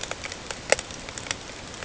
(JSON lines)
{"label": "ambient", "recorder": "HydroMoth"}